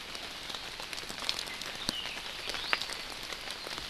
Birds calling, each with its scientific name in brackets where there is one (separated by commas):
Iiwi (Drepanis coccinea)